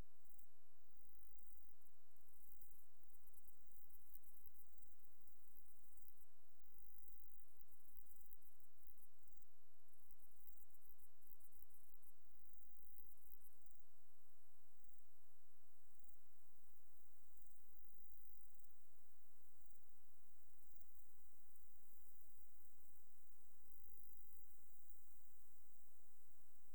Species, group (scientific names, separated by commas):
Stenobothrus rubicundulus, Orthoptera